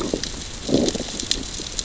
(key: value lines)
label: biophony, growl
recorder: SoundTrap 600 or HydroMoth